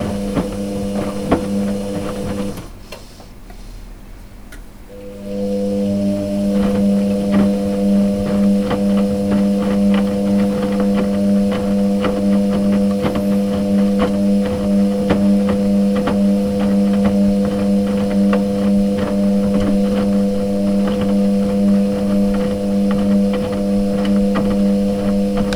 is something being moved around?
yes